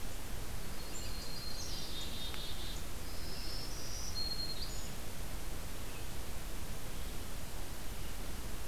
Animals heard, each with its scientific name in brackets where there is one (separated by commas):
Black-throated Green Warbler (Setophaga virens), Yellow-rumped Warbler (Setophaga coronata), Black-capped Chickadee (Poecile atricapillus)